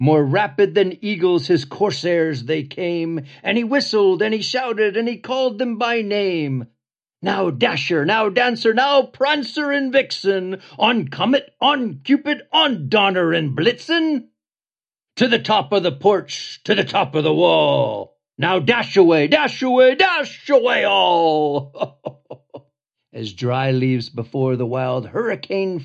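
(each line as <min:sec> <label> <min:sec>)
0:00.0 A man narrates a Christmas story in a deep, expressive voice with brief pauses, continuing at a steady pace. 0:25.8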